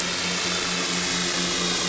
{"label": "anthrophony, boat engine", "recorder": "SoundTrap 500"}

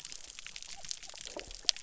{"label": "biophony", "recorder": "SoundTrap 300"}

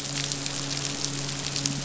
{"label": "biophony, midshipman", "recorder": "SoundTrap 500"}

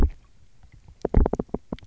{"label": "biophony, knock", "recorder": "SoundTrap 300"}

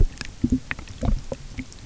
{"label": "geophony, waves", "recorder": "SoundTrap 300"}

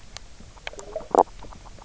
{"label": "biophony, stridulation", "recorder": "SoundTrap 300"}
{"label": "biophony, knock croak", "recorder": "SoundTrap 300"}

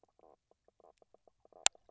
{"label": "biophony, knock croak", "recorder": "SoundTrap 300"}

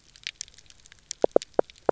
{"label": "biophony, knock croak", "recorder": "SoundTrap 300"}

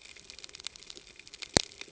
{"label": "ambient", "recorder": "HydroMoth"}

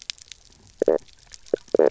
{"label": "biophony, knock croak", "recorder": "SoundTrap 300"}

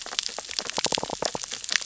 {"label": "biophony, sea urchins (Echinidae)", "recorder": "SoundTrap 600 or HydroMoth"}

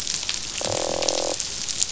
{"label": "biophony, croak", "recorder": "SoundTrap 500"}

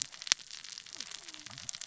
{"label": "biophony, cascading saw", "recorder": "SoundTrap 600 or HydroMoth"}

